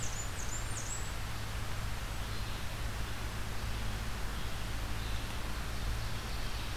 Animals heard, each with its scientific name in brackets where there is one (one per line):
Red-eyed Vireo (Vireo olivaceus)
Blackburnian Warbler (Setophaga fusca)